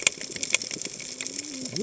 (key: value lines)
label: biophony, cascading saw
recorder: HydroMoth